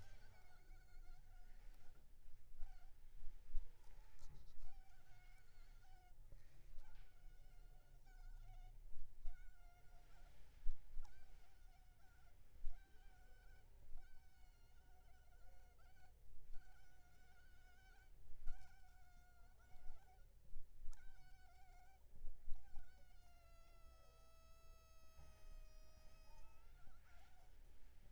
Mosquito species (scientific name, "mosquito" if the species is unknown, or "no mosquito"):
Culex pipiens complex